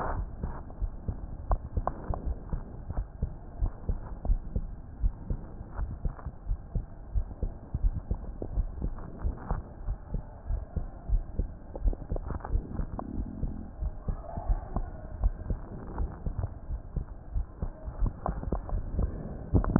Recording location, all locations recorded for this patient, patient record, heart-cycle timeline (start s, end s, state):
aortic valve (AV)
aortic valve (AV)+pulmonary valve (PV)+tricuspid valve (TV)+mitral valve (MV)
#Age: Adolescent
#Sex: Male
#Height: 139.0 cm
#Weight: 32.9 kg
#Pregnancy status: False
#Murmur: Absent
#Murmur locations: nan
#Most audible location: nan
#Systolic murmur timing: nan
#Systolic murmur shape: nan
#Systolic murmur grading: nan
#Systolic murmur pitch: nan
#Systolic murmur quality: nan
#Diastolic murmur timing: nan
#Diastolic murmur shape: nan
#Diastolic murmur grading: nan
#Diastolic murmur pitch: nan
#Diastolic murmur quality: nan
#Outcome: Normal
#Campaign: 2015 screening campaign
0.00	2.62	unannotated
2.62	2.90	diastole
2.90	3.06	S1
3.06	3.20	systole
3.20	3.30	S2
3.30	3.60	diastole
3.60	3.74	S1
3.74	3.86	systole
3.86	4.00	S2
4.00	4.26	diastole
4.26	4.42	S1
4.42	4.54	systole
4.54	4.68	S2
4.68	5.02	diastole
5.02	5.16	S1
5.16	5.28	systole
5.28	5.40	S2
5.40	5.76	diastole
5.76	5.90	S1
5.90	6.04	systole
6.04	6.14	S2
6.14	6.48	diastole
6.48	6.60	S1
6.60	6.74	systole
6.74	6.84	S2
6.84	7.14	diastole
7.14	7.28	S1
7.28	7.42	systole
7.42	7.54	S2
7.54	7.82	diastole
7.82	7.96	S1
7.96	8.08	systole
8.08	8.22	S2
8.22	8.54	diastole
8.54	8.70	S1
8.70	8.80	systole
8.80	8.94	S2
8.94	9.22	diastole
9.22	9.36	S1
9.36	9.50	systole
9.50	9.60	S2
9.60	9.86	diastole
9.86	9.98	S1
9.98	10.10	systole
10.10	10.22	S2
10.22	10.48	diastole
10.48	10.62	S1
10.62	10.76	systole
10.76	10.84	S2
10.84	11.10	diastole
11.10	11.26	S1
11.26	11.40	systole
11.40	11.52	S2
11.52	11.82	diastole
11.82	11.98	S1
11.98	12.10	systole
12.10	12.24	S2
12.24	12.52	diastole
12.52	12.66	S1
12.66	12.80	systole
12.80	12.90	S2
12.90	13.14	diastole
13.14	13.26	S1
13.26	13.42	systole
13.42	13.54	S2
13.54	13.80	diastole
13.80	13.94	S1
13.94	14.08	systole
14.08	14.20	S2
14.20	14.48	diastole
14.48	14.62	S1
14.62	14.76	systole
14.76	14.88	S2
14.88	15.18	diastole
15.18	15.36	S1
15.36	15.48	systole
15.48	15.62	S2
15.62	15.98	diastole
15.98	16.12	S1
16.12	16.22	systole
16.22	16.34	S2
16.34	16.68	diastole
16.68	16.80	S1
16.80	16.94	systole
16.94	17.04	S2
17.04	17.34	diastole
17.34	17.46	S1
17.46	17.58	systole
17.58	17.72	S2
17.72	17.95	diastole
17.95	19.79	unannotated